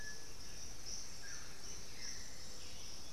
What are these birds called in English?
Black-billed Thrush, Russet-backed Oropendola